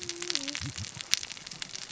{"label": "biophony, cascading saw", "recorder": "SoundTrap 600 or HydroMoth"}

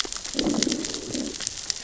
{"label": "biophony, growl", "recorder": "SoundTrap 600 or HydroMoth"}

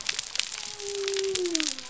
{"label": "biophony", "recorder": "SoundTrap 300"}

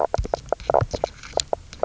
{"label": "biophony, knock croak", "recorder": "SoundTrap 300"}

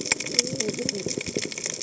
{"label": "biophony, cascading saw", "recorder": "HydroMoth"}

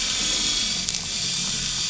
{"label": "anthrophony, boat engine", "recorder": "SoundTrap 500"}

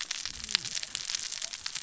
{"label": "biophony, cascading saw", "recorder": "SoundTrap 600 or HydroMoth"}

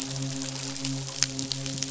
{"label": "biophony, midshipman", "recorder": "SoundTrap 500"}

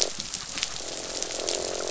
{"label": "biophony, croak", "recorder": "SoundTrap 500"}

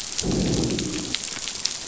{"label": "biophony, growl", "recorder": "SoundTrap 500"}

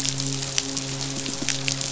{"label": "biophony, midshipman", "recorder": "SoundTrap 500"}
{"label": "biophony", "recorder": "SoundTrap 500"}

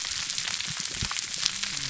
{"label": "biophony, whup", "recorder": "SoundTrap 300"}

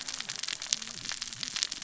{"label": "biophony, cascading saw", "recorder": "SoundTrap 600 or HydroMoth"}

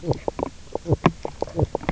{"label": "biophony, knock croak", "recorder": "SoundTrap 300"}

